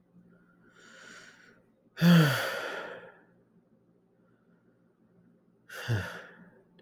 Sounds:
Sigh